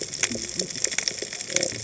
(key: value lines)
label: biophony, cascading saw
recorder: HydroMoth